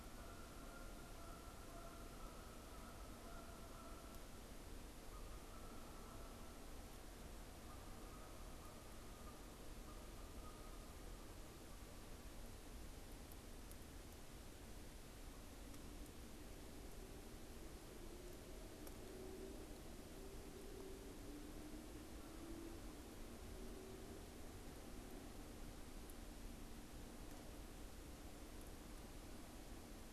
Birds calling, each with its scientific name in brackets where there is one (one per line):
Canada Goose (Branta canadensis)